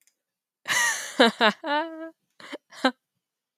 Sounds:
Laughter